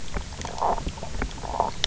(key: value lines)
label: biophony
recorder: SoundTrap 300